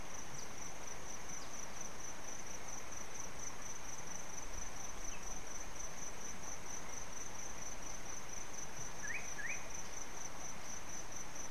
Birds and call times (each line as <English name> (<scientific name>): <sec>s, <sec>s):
Slate-colored Boubou (Laniarius funebris): 9.2s